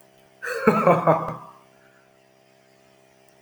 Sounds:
Laughter